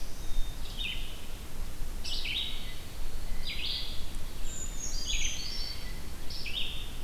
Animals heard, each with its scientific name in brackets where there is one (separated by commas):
Black-throated Blue Warbler (Setophaga caerulescens), Blue Jay (Cyanocitta cristata), Red-eyed Vireo (Vireo olivaceus), Black-capped Chickadee (Poecile atricapillus), Brown Creeper (Certhia americana)